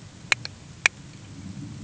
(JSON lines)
{"label": "anthrophony, boat engine", "recorder": "HydroMoth"}